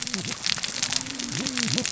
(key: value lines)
label: biophony, cascading saw
recorder: SoundTrap 600 or HydroMoth